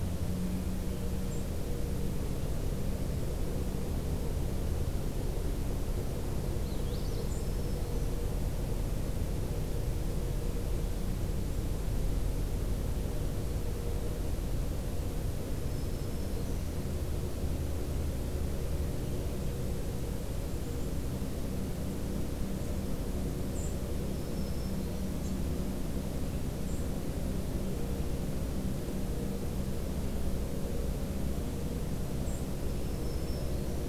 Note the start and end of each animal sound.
1.2s-1.5s: White-throated Sparrow (Zonotrichia albicollis)
6.5s-7.3s: Magnolia Warbler (Setophaga magnolia)
7.2s-7.5s: White-throated Sparrow (Zonotrichia albicollis)
7.3s-8.2s: Black-throated Green Warbler (Setophaga virens)
15.6s-16.7s: Golden-crowned Kinglet (Regulus satrapa)
20.0s-21.1s: Golden-crowned Kinglet (Regulus satrapa)
23.4s-23.7s: White-throated Sparrow (Zonotrichia albicollis)
23.9s-25.2s: Black-throated Green Warbler (Setophaga virens)
26.5s-27.0s: White-throated Sparrow (Zonotrichia albicollis)
32.2s-32.5s: White-throated Sparrow (Zonotrichia albicollis)
32.5s-33.9s: Black-throated Green Warbler (Setophaga virens)

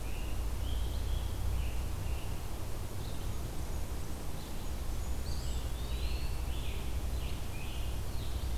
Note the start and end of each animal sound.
0.0s-2.5s: Scarlet Tanager (Piranga olivacea)
2.8s-5.8s: Blackburnian Warbler (Setophaga fusca)
5.2s-6.5s: Eastern Wood-Pewee (Contopus virens)
5.4s-8.6s: Scarlet Tanager (Piranga olivacea)

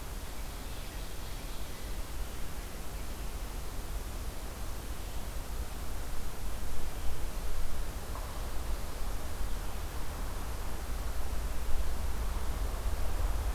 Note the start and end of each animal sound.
0.0s-2.3s: Ovenbird (Seiurus aurocapilla)

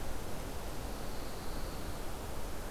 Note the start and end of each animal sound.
0.5s-2.0s: Pine Warbler (Setophaga pinus)

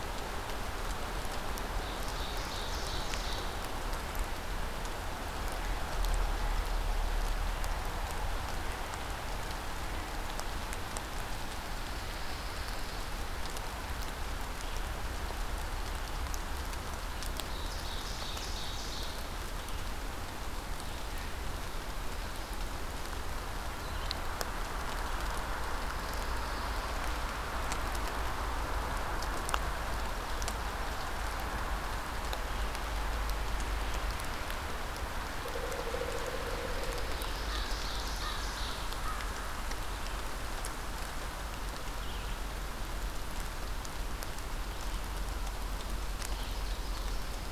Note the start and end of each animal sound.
1.6s-3.6s: Ovenbird (Seiurus aurocapilla)
11.8s-13.0s: Pine Warbler (Setophaga pinus)
17.2s-19.5s: Ovenbird (Seiurus aurocapilla)
25.6s-27.1s: Pine Warbler (Setophaga pinus)
36.7s-39.1s: Ovenbird (Seiurus aurocapilla)
37.3s-39.3s: American Crow (Corvus brachyrhynchos)
46.1s-47.5s: Ovenbird (Seiurus aurocapilla)

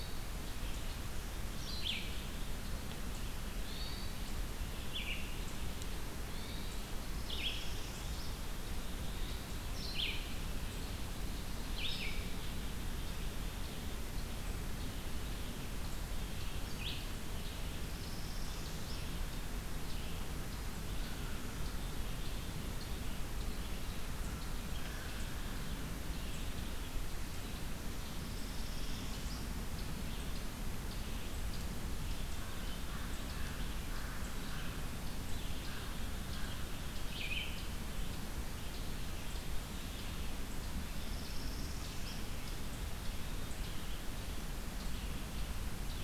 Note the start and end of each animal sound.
0.0s-7.0s: Hermit Thrush (Catharus guttatus)
1.6s-17.1s: Red-eyed Vireo (Vireo olivaceus)
7.1s-8.4s: Northern Parula (Setophaga americana)
17.7s-19.1s: Northern Parula (Setophaga americana)
24.2s-25.8s: American Crow (Corvus brachyrhynchos)
28.1s-29.5s: Northern Parula (Setophaga americana)
32.3s-36.6s: American Crow (Corvus brachyrhynchos)
35.9s-46.0s: Red-eyed Vireo (Vireo olivaceus)
40.9s-42.3s: Northern Parula (Setophaga americana)

